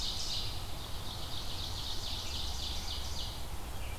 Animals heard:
Red-eyed Vireo (Vireo olivaceus), Ovenbird (Seiurus aurocapilla)

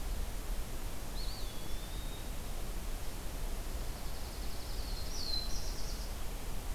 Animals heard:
Eastern Wood-Pewee (Contopus virens), Dark-eyed Junco (Junco hyemalis), Black-throated Blue Warbler (Setophaga caerulescens)

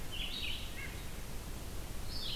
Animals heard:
Red-eyed Vireo (Vireo olivaceus), White-breasted Nuthatch (Sitta carolinensis)

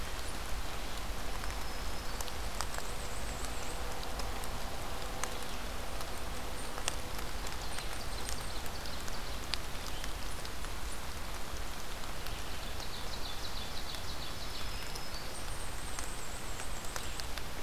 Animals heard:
unidentified call, Ovenbird (Seiurus aurocapilla), Black-and-white Warbler (Mniotilta varia), Black-throated Green Warbler (Setophaga virens)

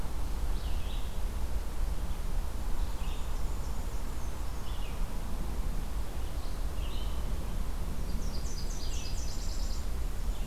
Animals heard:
Red-eyed Vireo (Vireo olivaceus), Nashville Warbler (Leiothlypis ruficapilla), Black-and-white Warbler (Mniotilta varia)

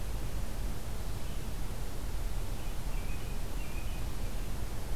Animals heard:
American Robin (Turdus migratorius)

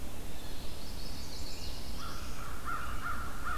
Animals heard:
Chimney Swift (Chaetura pelagica), Blue Jay (Cyanocitta cristata), American Crow (Corvus brachyrhynchos), Black-throated Blue Warbler (Setophaga caerulescens)

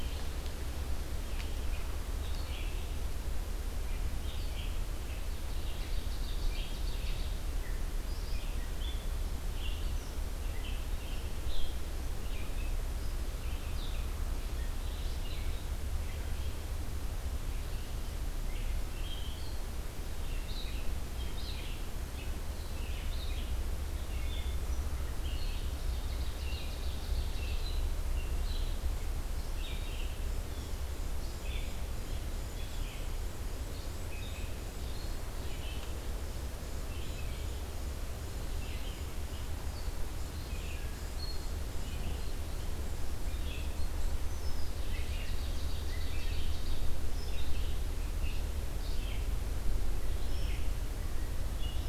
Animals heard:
Ovenbird (Seiurus aurocapilla), Red-eyed Vireo (Vireo olivaceus)

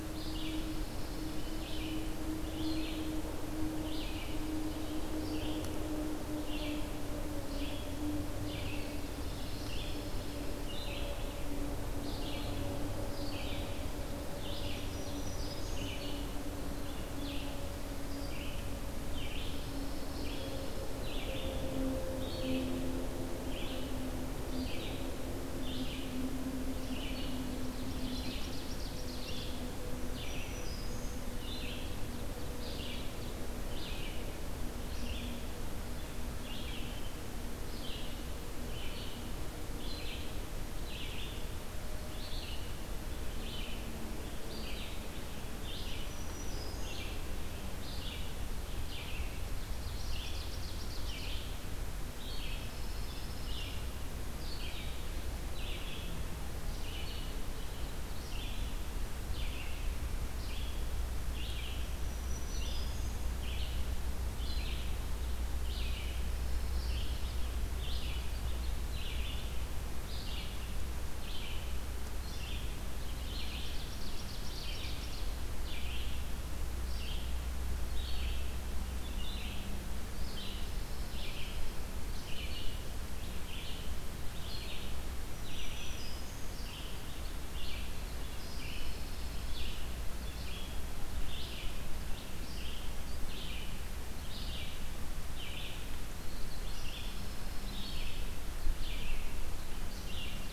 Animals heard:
Black-throated Green Warbler (Setophaga virens), Red-eyed Vireo (Vireo olivaceus), Ovenbird (Seiurus aurocapilla), Pine Warbler (Setophaga pinus)

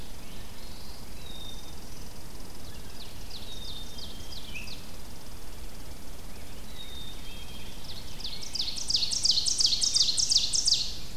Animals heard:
Rose-breasted Grosbeak (Pheucticus ludovicianus), Black-throated Blue Warbler (Setophaga caerulescens), Red Squirrel (Tamiasciurus hudsonicus), Black-capped Chickadee (Poecile atricapillus), Ovenbird (Seiurus aurocapilla)

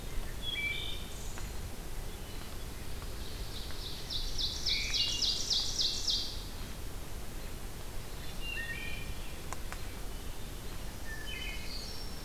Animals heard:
Ovenbird (Seiurus aurocapilla), Wood Thrush (Hylocichla mustelina)

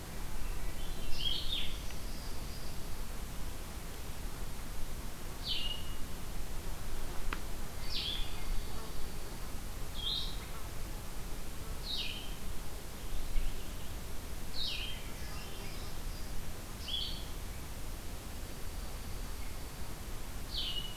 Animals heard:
Blue-headed Vireo (Vireo solitarius), Swainson's Thrush (Catharus ustulatus), Boreal Chickadee (Poecile hudsonicus), Dark-eyed Junco (Junco hyemalis)

